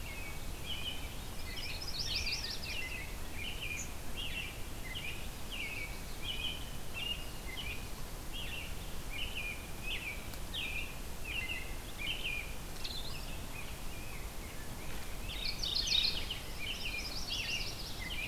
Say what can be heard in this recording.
American Robin, Yellow-rumped Warbler, Rose-breasted Grosbeak, Mourning Warbler